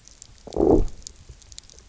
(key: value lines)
label: biophony, low growl
recorder: SoundTrap 300